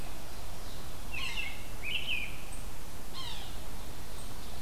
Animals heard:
Yellow-bellied Sapsucker (Sphyrapicus varius), American Robin (Turdus migratorius), Ovenbird (Seiurus aurocapilla), Red-eyed Vireo (Vireo olivaceus)

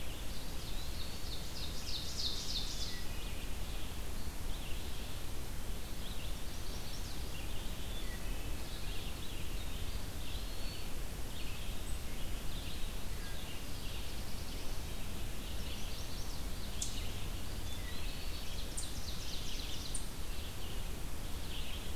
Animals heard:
Eastern Wood-Pewee (Contopus virens), Red-eyed Vireo (Vireo olivaceus), Black-throated Blue Warbler (Setophaga caerulescens), Wood Thrush (Hylocichla mustelina), Eastern Chipmunk (Tamias striatus), Chestnut-sided Warbler (Setophaga pensylvanica), Ovenbird (Seiurus aurocapilla)

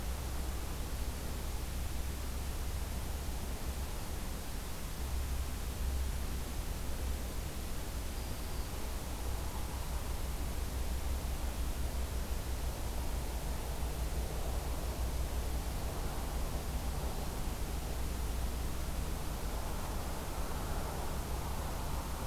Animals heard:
Black-throated Green Warbler (Setophaga virens)

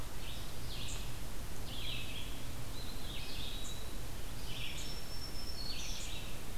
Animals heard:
Red-eyed Vireo (Vireo olivaceus), unknown mammal, Black-throated Green Warbler (Setophaga virens), Eastern Wood-Pewee (Contopus virens)

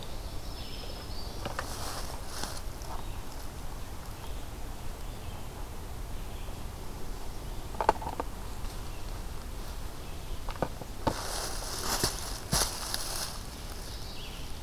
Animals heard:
Black-throated Green Warbler (Setophaga virens), Ovenbird (Seiurus aurocapilla), Red-eyed Vireo (Vireo olivaceus)

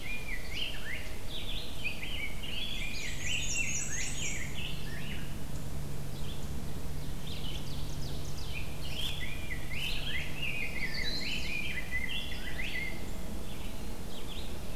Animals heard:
Black-and-white Warbler (Mniotilta varia), Ovenbird (Seiurus aurocapilla), Eastern Wood-Pewee (Contopus virens), Rose-breasted Grosbeak (Pheucticus ludovicianus), Chestnut-sided Warbler (Setophaga pensylvanica), Red-eyed Vireo (Vireo olivaceus)

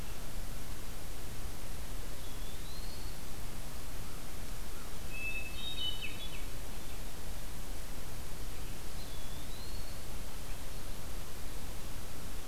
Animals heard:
American Crow (Corvus brachyrhynchos), Hermit Thrush (Catharus guttatus), Eastern Wood-Pewee (Contopus virens)

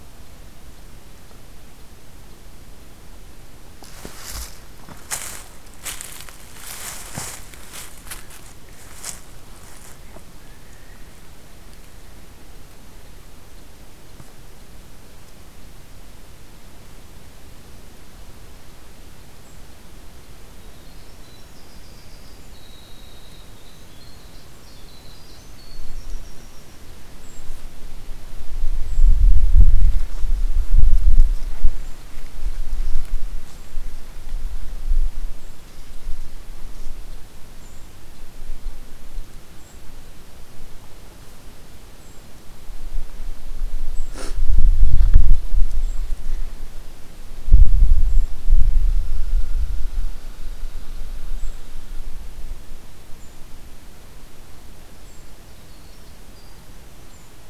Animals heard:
Winter Wren (Troglodytes hiemalis), Brown Creeper (Certhia americana)

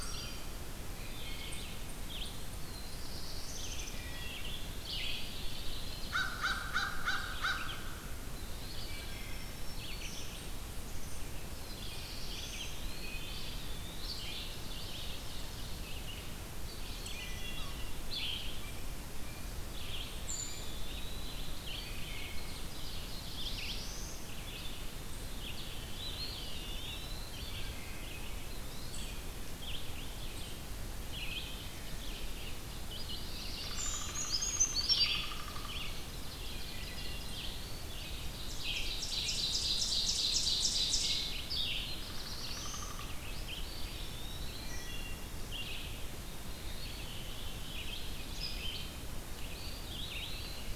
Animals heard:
Eastern Wood-Pewee (Contopus virens), American Crow (Corvus brachyrhynchos), Black-throated Green Warbler (Setophaga virens), unknown mammal, Ovenbird (Seiurus aurocapilla), Downy Woodpecker (Dryobates pubescens), Red-eyed Vireo (Vireo olivaceus), Wood Thrush (Hylocichla mustelina), Brown Creeper (Certhia americana), Black-throated Blue Warbler (Setophaga caerulescens), Veery (Catharus fuscescens)

